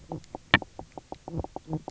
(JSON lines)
{"label": "biophony, knock croak", "recorder": "SoundTrap 300"}